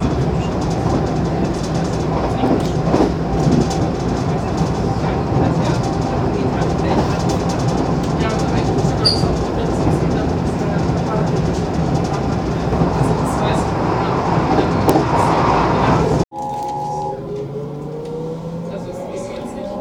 Is the vehicle moving at the start of the clip?
yes